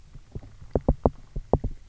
{"label": "biophony, knock", "recorder": "SoundTrap 300"}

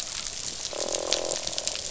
{"label": "biophony, croak", "recorder": "SoundTrap 500"}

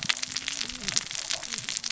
{"label": "biophony, cascading saw", "recorder": "SoundTrap 600 or HydroMoth"}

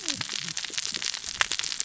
{"label": "biophony, cascading saw", "recorder": "SoundTrap 600 or HydroMoth"}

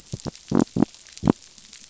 {"label": "biophony", "recorder": "SoundTrap 500"}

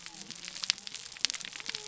{"label": "biophony", "recorder": "SoundTrap 300"}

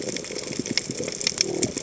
{"label": "biophony", "recorder": "HydroMoth"}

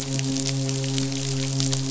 {"label": "biophony, midshipman", "recorder": "SoundTrap 500"}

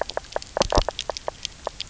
{"label": "biophony, knock croak", "recorder": "SoundTrap 300"}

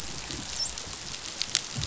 {"label": "biophony, dolphin", "recorder": "SoundTrap 500"}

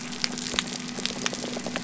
{"label": "biophony", "recorder": "SoundTrap 300"}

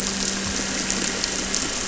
{"label": "anthrophony, boat engine", "recorder": "SoundTrap 300"}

